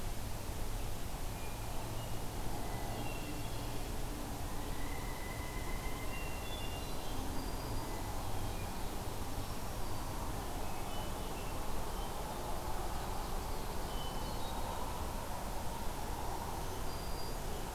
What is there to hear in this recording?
Hermit Thrush, Pileated Woodpecker, Black-throated Green Warbler, Ovenbird